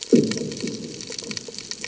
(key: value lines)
label: anthrophony, bomb
recorder: HydroMoth